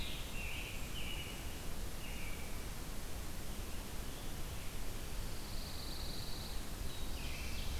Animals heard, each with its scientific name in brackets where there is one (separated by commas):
Pine Warbler (Setophaga pinus), American Robin (Turdus migratorius), Black-throated Blue Warbler (Setophaga caerulescens), Scarlet Tanager (Piranga olivacea)